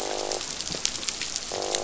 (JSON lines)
{"label": "biophony, croak", "recorder": "SoundTrap 500"}